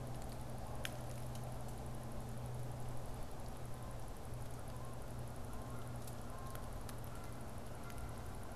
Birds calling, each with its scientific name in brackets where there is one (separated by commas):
Canada Goose (Branta canadensis)